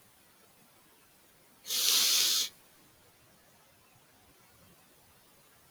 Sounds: Sniff